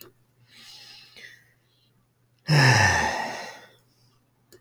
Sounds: Sigh